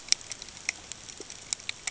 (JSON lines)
{"label": "ambient", "recorder": "HydroMoth"}